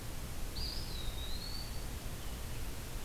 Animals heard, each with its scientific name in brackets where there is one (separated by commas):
Eastern Wood-Pewee (Contopus virens)